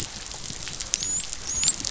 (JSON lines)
{"label": "biophony, dolphin", "recorder": "SoundTrap 500"}